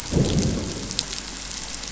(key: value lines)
label: biophony, growl
recorder: SoundTrap 500